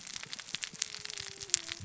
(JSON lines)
{"label": "biophony, cascading saw", "recorder": "SoundTrap 600 or HydroMoth"}